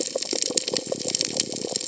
{"label": "biophony", "recorder": "HydroMoth"}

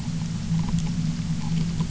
{"label": "anthrophony, boat engine", "recorder": "SoundTrap 300"}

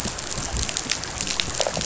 {"label": "biophony, rattle response", "recorder": "SoundTrap 500"}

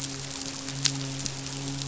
{"label": "biophony, midshipman", "recorder": "SoundTrap 500"}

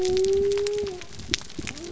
{"label": "biophony", "recorder": "SoundTrap 300"}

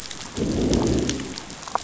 {"label": "biophony, growl", "recorder": "SoundTrap 500"}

